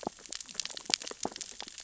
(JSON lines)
{"label": "biophony, sea urchins (Echinidae)", "recorder": "SoundTrap 600 or HydroMoth"}